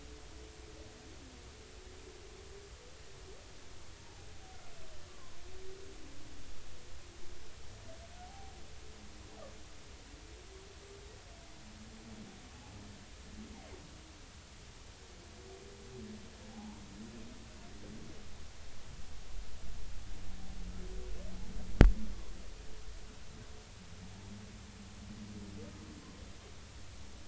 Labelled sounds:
5.1	5.4	humpback whale, 0.93 to 1.2 kHz
8.2	8.6	humpback whale, 0.80 to 0.90 kHz
16.5	16.8	humpback whale, 0.80 to 1.1 kHz

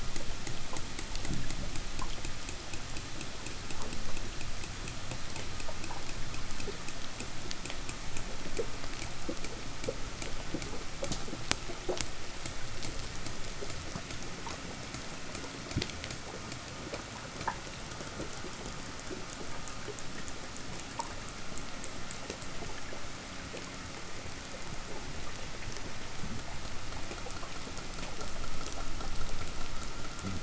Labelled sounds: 1.0	1.8	fish, 0 to 0.54 kHz
29.9	30.4	fish, 0 to 0.88 kHz

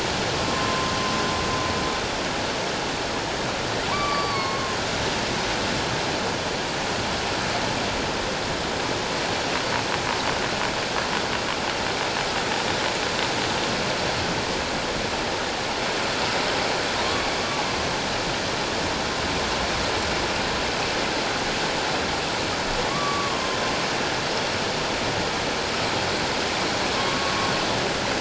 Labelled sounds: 0.5	0.9	humpback whale, 1.0 to 1.1 kHz
3.9	4.8	humpback whale, 0.91 to 4.7 kHz
17.0	17.6	humpback whale, 1.0 to 1.2 kHz
22.9	23.4	humpback whale, 1.0 to 1.2 kHz
26.9	27.3	humpback whale, 1.0 to 1.2 kHz

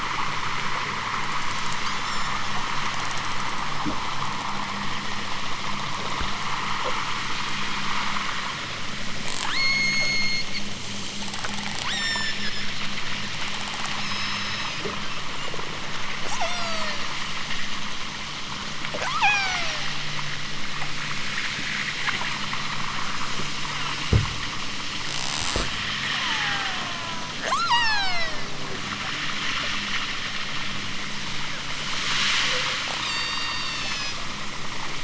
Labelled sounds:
1.9	2.4	killer whale, southern Alaska resident, 3.3 to 8.0 kHz
9.3	10.5	killer whale, southern Alaska resident, 0.55 to 8.0 kHz
11.8	12.7	killer whale, southern Alaska resident, 0.83 to 8.0 kHz
13.8	14.9	killer whale, southern Alaska resident, 3.8 to 7.3 kHz
16.2	17.1	killer whale, southern Alaska resident, 0.50 to 8.0 kHz
18.9	20.0	killer whale, southern Alaska resident, 0.32 to 8.0 kHz
22.1	22.6	killer whale, southern Alaska resident, 1.0 to 3.9 kHz
23.8	24.1	killer whale, southern Alaska resident, 2.1 to 4.3 kHz
26.1	28.6	killer whale, southern Alaska resident, 0.32 to 8.0 kHz
32.9	34.2	killer whale, southern Alaska resident, 1.1 to 8.0 kHz

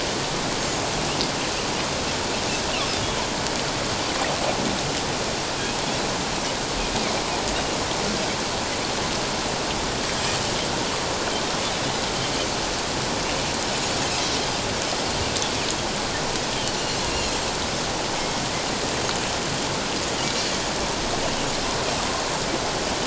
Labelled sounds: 10.1	10.4	Pacific white-sided dolphin, 7.3 to 7.6 kHz
17.0	17.3	Pacific white-sided dolphin, 2.5 to 2.9 kHz

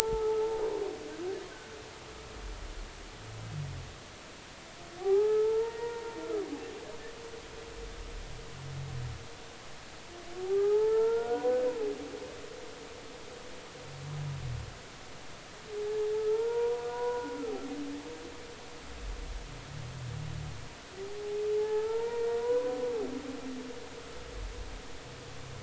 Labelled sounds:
1.0	1.4	humpback whale, 0.80 to 1.4 kHz
5.6	7.2	humpback whale, 0.80 to 1.9 kHz
10.4	11.6	humpback whale, 0.80 to 1.5 kHz
15.9	17.3	humpback whale, 0.80 to 1.5 kHz
21.5	22.8	humpback whale, 0.80 to 2.4 kHz

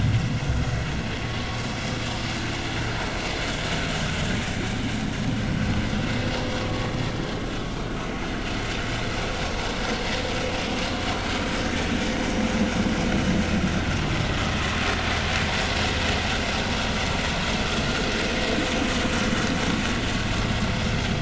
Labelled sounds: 12.2	12.5	vessel noise, 5.6 to 6.0 kHz

